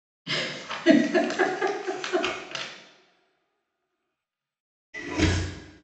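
At 0.25 seconds, someone giggles. Then, at 4.93 seconds, a window opens.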